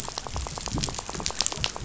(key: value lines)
label: biophony, rattle
recorder: SoundTrap 500